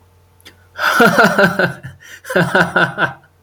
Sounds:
Laughter